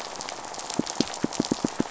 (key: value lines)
label: biophony, pulse
recorder: SoundTrap 500